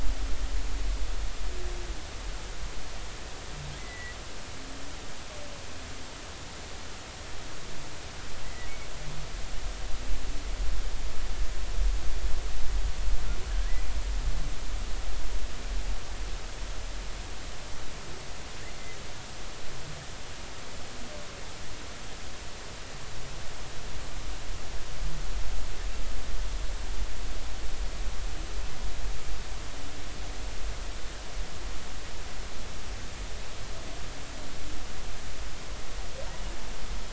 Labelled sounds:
3.8	4.2	humpback whale, 1.9 to 2.1 kHz
8.4	8.7	humpback whale, 1.9 to 2.0 kHz

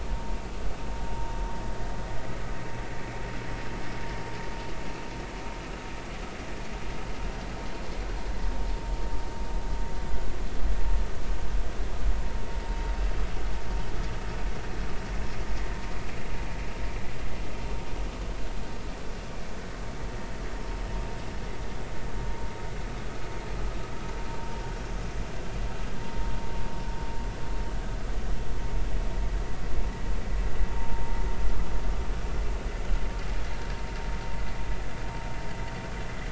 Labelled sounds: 30.7	31.1	vessel noise, 0.83 to 0.99 kHz

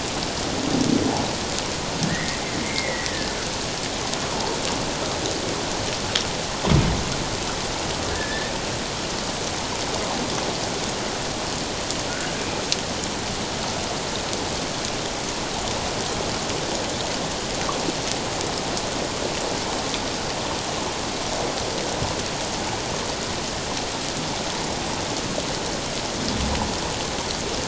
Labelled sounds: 2.0	3.1	humpback whale, 1.7 to 2.4 kHz
4.2	4.5	humpback whale, 0.78 to 1.3 kHz
8.1	8.5	humpback whale, 1.6 to 1.9 kHz
12.3	12.6	humpback whale, 2.3 to 2.6 kHz

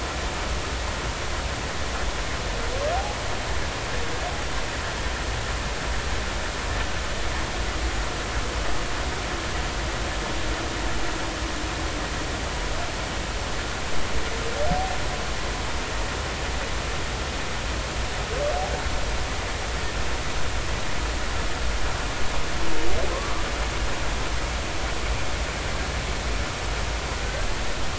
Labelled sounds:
23.1	23.4	humpback whale, 0.96 to 1.3 kHz
27.2	27.5	humpback whale, 1.4 to 1.6 kHz

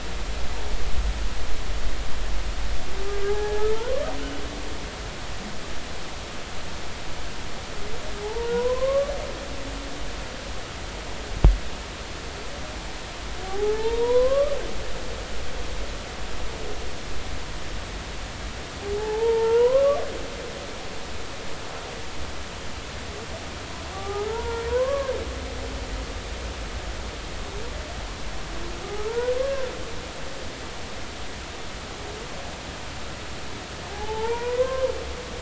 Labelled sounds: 3.2	4.0	humpback whale, 0.80 to 1.8 kHz
8.2	9.1	humpback whale, 0.80 to 1.2 kHz
13.4	14.6	humpback whale, 0.80 to 1.3 kHz
18.9	20.0	humpback whale, 0.80 to 1.2 kHz
23.9	25.1	humpback whale, 0.80 to 1.7 kHz
28.8	29.7	humpback whale, 0.83 to 1.8 kHz
33.9	34.9	humpback whale, 0.80 to 2.5 kHz

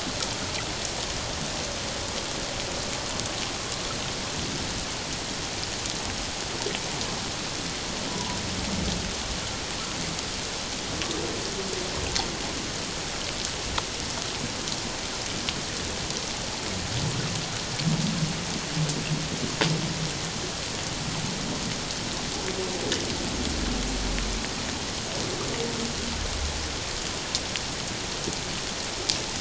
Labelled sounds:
8.1	8.4	humpback whale, 0.84 to 1.0 kHz

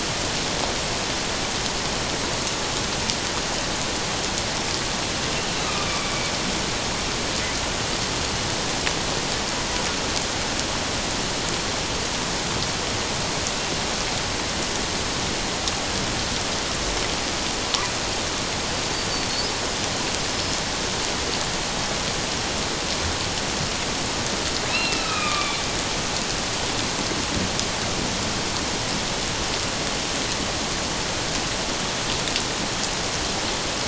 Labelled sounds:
5.6	5.9	killer whale, northern resident, A clan, AA subclan, 1.1 to 1.3 kHz
24.7	25.6	killer whale, northern resident, A clan, AA subclan, 1.1 to 2.8 kHz

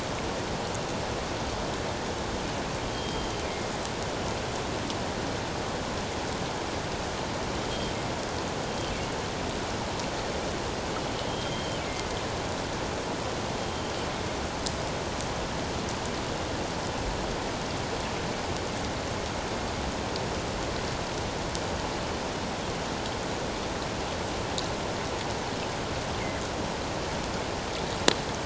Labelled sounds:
2.9	3.7	killer whale, northern resident, G clan, GG subclan, 2.1 to 3.3 kHz
11.3	11.8	killer whale, northern resident, G clan, GG subclan, 2.8 to 3.3 kHz

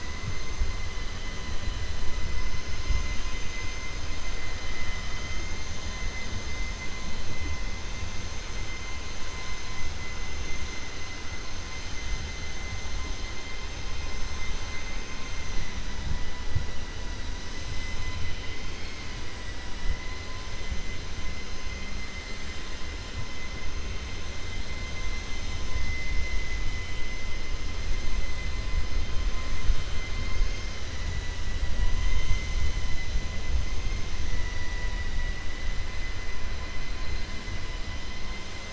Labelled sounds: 4.6	5.6	vessel noise, 1.3 to 3.1 kHz
14.6	15.4	vessel noise, 1.5 to 2.7 kHz
17.7	19.1	vessel noise, 2.0 to 4.8 kHz

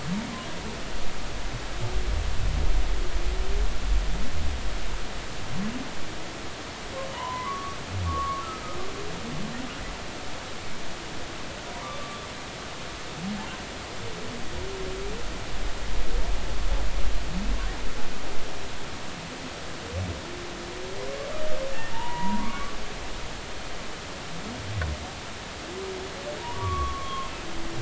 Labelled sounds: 7.1	8.4	humpback whale, 0.86 to 1.2 kHz
11.7	11.9	humpback whale, 0.90 to 1.1 kHz
21.9	22.8	humpback whale, 0.86 to 2.3 kHz
26.4	27.3	humpback whale, 0.90 to 3.4 kHz

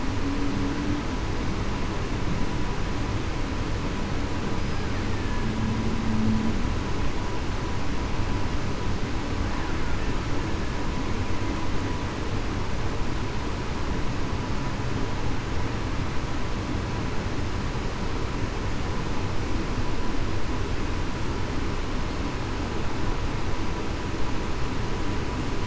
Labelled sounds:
5.1	5.5	killer whale, Bigg's (transient), 1.7 to 1.9 kHz

